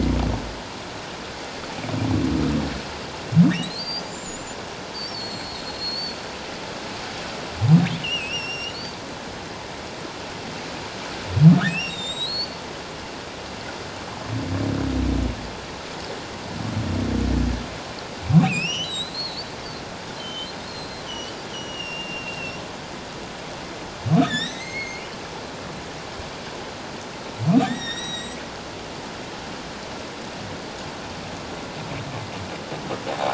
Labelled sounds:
3.6	4.5	humpback whale, 3.6 to 7.4 kHz
5.1	6.2	humpback whale, 4.2 to 7.6 kHz
8.0	8.8	humpback whale, 2.5 to 5.8 kHz
11.6	12.6	humpback whale, 1.2 to 7.9 kHz
18.4	19.5	humpback whale, 2.2 to 8.0 kHz
20.2	22.6	humpback whale, 2.6 to 6.0 kHz
24.2	25.1	humpback whale, 1.6 to 8.0 kHz
27.6	28.4	humpback whale, 1.7 to 7.9 kHz
33.1	33.3	humpback whale, 0.78 to 0.91 kHz

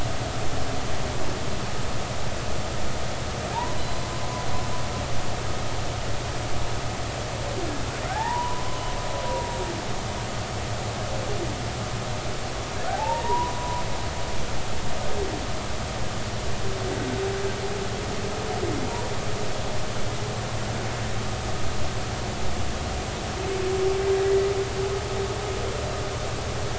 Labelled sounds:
3.8	4.1	humpback whale, 4.0 to 4.1 kHz
9.1	9.8	humpback whale, 0.80 to 2.0 kHz
12.9	13.8	humpback whale, 0.80 to 1.1 kHz

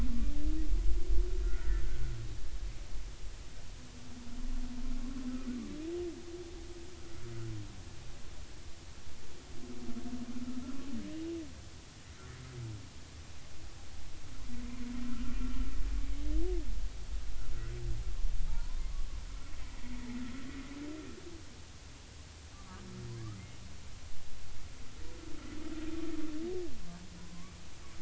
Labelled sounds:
1.4	1.9	humpback whale, 1.3 to 2.0 kHz
15.4	15.7	humpback whale, 1.3 to 1.4 kHz
18.5	19.1	humpback whale, 0.83 to 1.2 kHz
19.6	20.0	humpback whale, 1.8 to 2.1 kHz
22.5	22.8	humpback whale, 1.1 to 1.3 kHz
27.2	27.5	humpback whale, 0.93 to 1.2 kHz

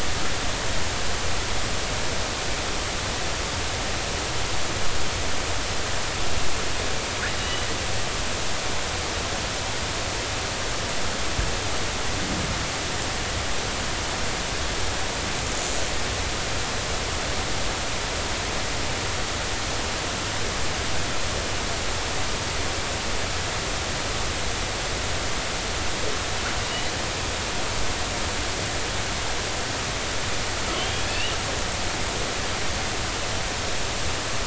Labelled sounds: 7.4	7.7	killer whale, northern resident, G clan, 2.8 to 3.1 kHz
30.7	31.4	killer whale, northern resident, G clan, 2.5 to 3.6 kHz

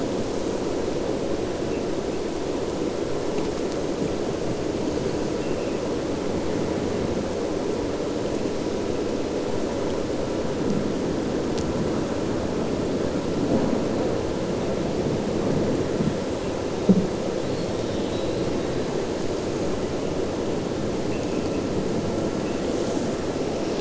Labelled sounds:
5.4	5.8	abiotic sound, 2.0 to 2.8 kHz
17.4	18.5	abiotic sound, 3.0 to 4.5 kHz

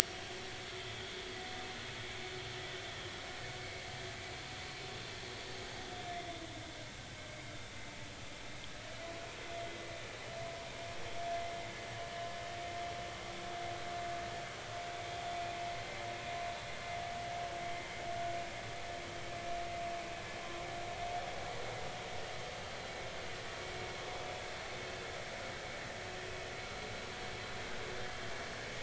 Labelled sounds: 0.1	0.4	vessel noise, 3.1 to 3.4 kHz

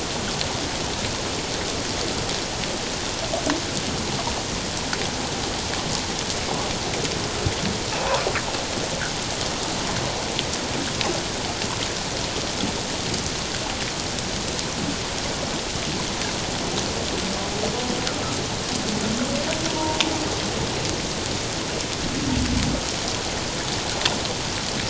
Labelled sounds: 19.7	20.0	humpback whale, 0.88 to 1.0 kHz

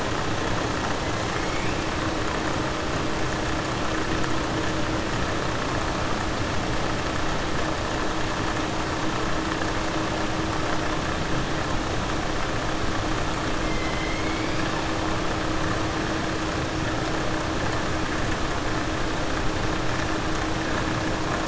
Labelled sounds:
13.6	14.6	killer whale, southern resident, 2.0 to 3.1 kHz

